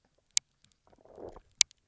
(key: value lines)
label: biophony, low growl
recorder: SoundTrap 300